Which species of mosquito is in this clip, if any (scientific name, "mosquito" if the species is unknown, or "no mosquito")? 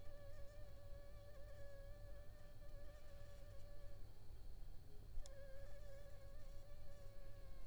Anopheles funestus s.l.